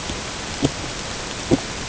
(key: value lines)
label: ambient
recorder: HydroMoth